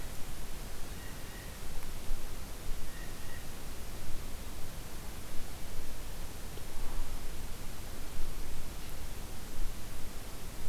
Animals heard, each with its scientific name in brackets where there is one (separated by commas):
Blue Jay (Cyanocitta cristata)